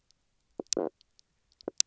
{"label": "biophony, stridulation", "recorder": "SoundTrap 300"}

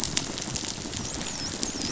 {"label": "biophony, dolphin", "recorder": "SoundTrap 500"}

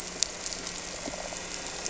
{"label": "anthrophony, boat engine", "recorder": "SoundTrap 300"}
{"label": "biophony", "recorder": "SoundTrap 300"}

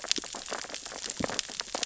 {"label": "biophony, sea urchins (Echinidae)", "recorder": "SoundTrap 600 or HydroMoth"}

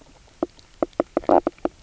{"label": "biophony, knock croak", "recorder": "SoundTrap 300"}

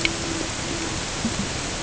{"label": "ambient", "recorder": "HydroMoth"}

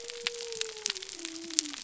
{"label": "biophony", "recorder": "SoundTrap 300"}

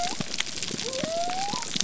{"label": "biophony", "recorder": "SoundTrap 300"}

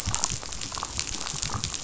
{"label": "biophony, damselfish", "recorder": "SoundTrap 500"}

